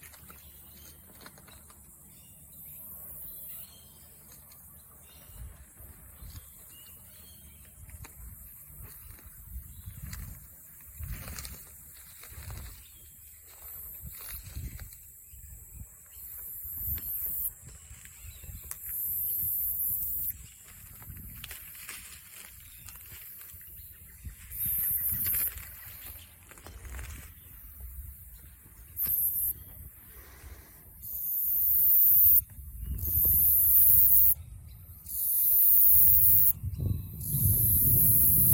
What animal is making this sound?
Atrapsalta fuscata, a cicada